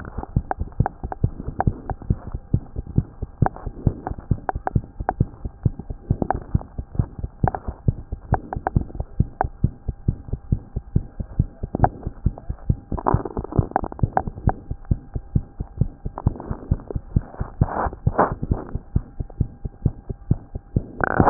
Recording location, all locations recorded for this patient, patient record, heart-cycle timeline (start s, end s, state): mitral valve (MV)
aortic valve (AV)+pulmonary valve (PV)+tricuspid valve (TV)+mitral valve (MV)
#Age: Child
#Sex: Female
#Height: 95.0 cm
#Weight: 13.1 kg
#Pregnancy status: False
#Murmur: Present
#Murmur locations: aortic valve (AV)+mitral valve (MV)+pulmonary valve (PV)+tricuspid valve (TV)
#Most audible location: tricuspid valve (TV)
#Systolic murmur timing: Early-systolic
#Systolic murmur shape: Plateau
#Systolic murmur grading: II/VI
#Systolic murmur pitch: Low
#Systolic murmur quality: Blowing
#Diastolic murmur timing: nan
#Diastolic murmur shape: nan
#Diastolic murmur grading: nan
#Diastolic murmur pitch: nan
#Diastolic murmur quality: nan
#Outcome: Abnormal
#Campaign: 2015 screening campaign
0.00	14.53	unannotated
14.53	14.69	diastole
14.69	14.76	S1
14.76	14.88	systole
14.88	14.96	S2
14.96	15.14	diastole
15.14	15.22	S1
15.22	15.34	systole
15.34	15.42	S2
15.42	15.57	diastole
15.57	15.65	S1
15.65	15.79	systole
15.79	15.88	S2
15.88	16.05	diastole
16.05	16.11	S1
16.11	16.25	systole
16.25	16.33	S2
16.33	16.48	diastole
16.48	16.58	S1
16.58	16.70	systole
16.70	16.80	S2
16.80	16.92	diastole
16.92	17.02	S1
17.02	17.14	systole
17.14	17.23	S2
17.23	17.37	diastole
17.37	17.47	S1
17.47	17.60	systole
17.60	17.72	S2
17.72	17.82	diastole
17.82	17.94	S1
17.94	18.06	systole
18.06	18.14	S2
18.14	18.27	diastole
18.27	18.35	S1
18.35	18.48	systole
18.48	18.59	S2
18.59	18.74	diastole
18.74	18.81	S1
18.81	18.93	systole
18.93	19.03	S2
19.03	19.17	diastole
19.17	19.26	S1
19.26	19.38	systole
19.38	19.46	S2
19.46	19.63	diastole
19.63	19.71	S1
19.71	19.84	systole
19.84	19.92	S2
19.92	20.08	diastole
20.08	20.16	S1
20.16	20.29	systole
20.29	20.40	S2
20.40	20.53	diastole
20.53	20.61	S1
20.61	20.73	systole
20.73	20.82	S2
20.82	21.00	diastole
21.00	21.30	unannotated